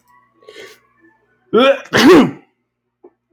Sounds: Sneeze